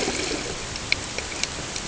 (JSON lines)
{"label": "ambient", "recorder": "HydroMoth"}